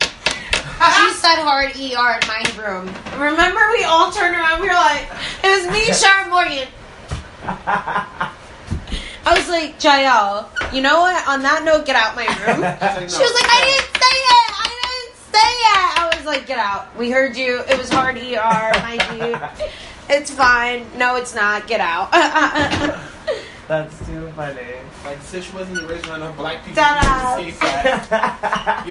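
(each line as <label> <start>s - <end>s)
Sharp knocks on a wooden surface. 0.0s - 0.8s
A person produces a sharp, loud exclamation. 0.8s - 1.1s
Two people are speaking loudly indoors. 0.8s - 28.9s
Sharp knocks on a wooden surface. 2.2s - 2.6s
A person chuckles softly. 5.6s - 6.2s
People chuckle softly. 7.3s - 9.2s
A person chuckles softly. 12.6s - 13.5s
Sharp knocks on a wooden surface. 13.1s - 17.9s
A person chuckles softly. 18.4s - 19.6s
Sharp knocks on a wooden surface. 18.7s - 19.2s
A person imitates laughter with a short, artificial chuckle. 22.1s - 23.2s
A person produces a sharp, loud exclamation. 26.8s - 27.6s
A person chuckles softly. 27.5s - 28.8s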